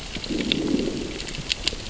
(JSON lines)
{"label": "biophony, growl", "recorder": "SoundTrap 600 or HydroMoth"}